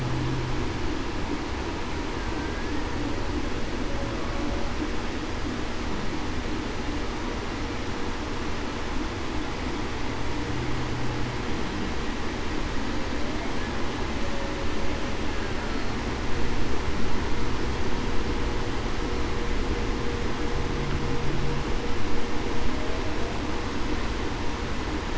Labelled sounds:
2.2	2.7	killer whale, Bigg's (transient), 1.5 to 1.7 kHz

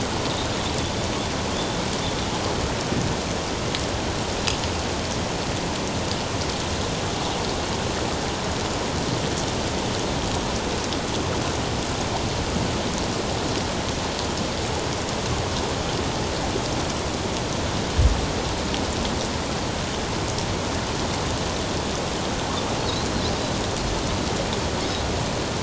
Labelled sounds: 1.5	1.8	Pacific white-sided dolphin, 3.2 to 3.6 kHz

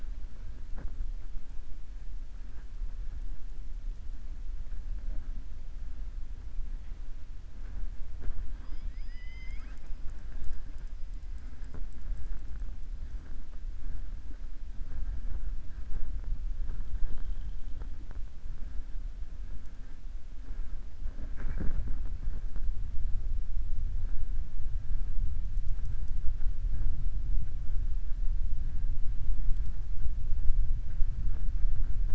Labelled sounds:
8.5	9.9	killer whale, southern resident, 0.93 to 7.6 kHz

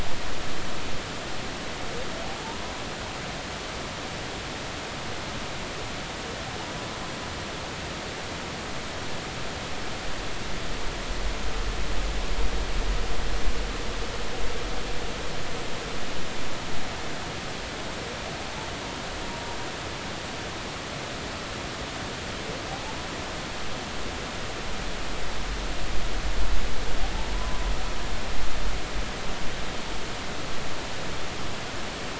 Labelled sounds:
22.7	23.0	humpback whale, 0.80 to 0.93 kHz
27.3	27.7	humpback whale, 0.96 to 1.2 kHz

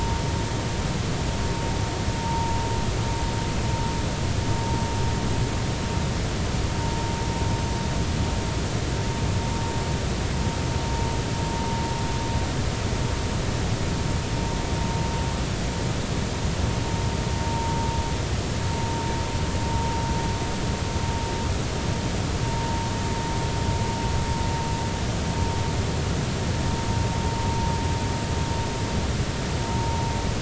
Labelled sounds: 2.2	2.6	vessel noise, 0.86 to 0.99 kHz
17.5	17.8	vessel noise, 0.90 to 0.99 kHz
29.7	30.0	vessel noise, 0.86 to 0.96 kHz

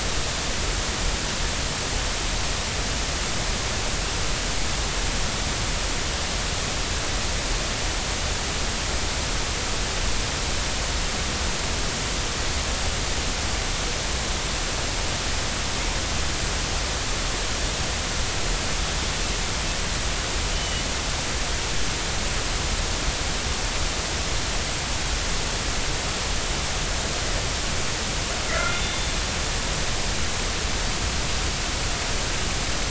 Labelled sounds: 20.5	20.8	killer whale, northern resident, G clan, 2.8 to 3.1 kHz
28.5	29.0	killer whale, northern resident, G clan, 1.3 to 3.6 kHz

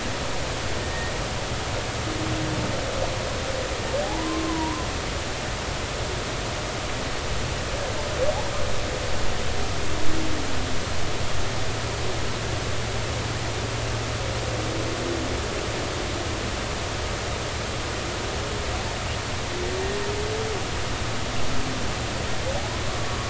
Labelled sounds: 0.8	1.1	humpback whale, 1.8 to 2.0 kHz
4.0	4.9	humpback whale, 0.80 to 1.2 kHz

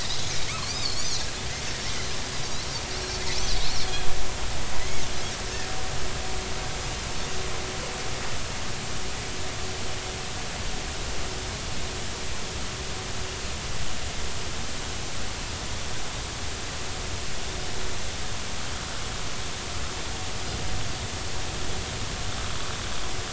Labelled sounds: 0.6	1.1	Pacific white-sided dolphin, 4.1 to 5.1 kHz
3.6	5.0	Pacific white-sided dolphin, 1.9 to 4.5 kHz

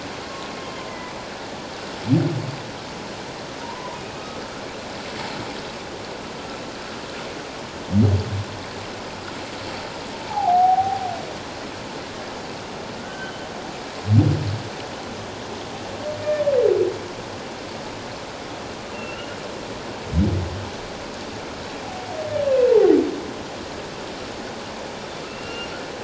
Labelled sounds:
0.2	0.5	humpback whale, 1.0 to 1.1 kHz
3.6	4.3	humpback whale, 0.88 to 2.6 kHz
10.3	11.0	humpback whale, 0.78 to 0.97 kHz
13.0	13.5	humpback whale, 1.4 to 3.1 kHz
18.9	19.4	humpback whale, 2.6 to 3.0 kHz
22.7	22.9	humpback whale, 0.78 to 0.97 kHz
25.3	25.7	humpback whale, 1.3 to 2.9 kHz

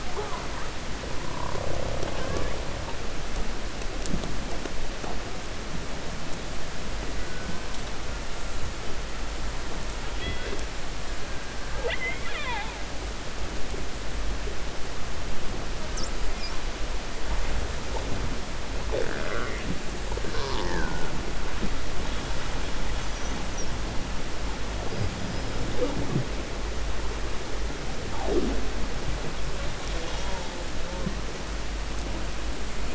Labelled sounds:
11.6	12.8	killer whale, 0.49 to 3.9 kHz

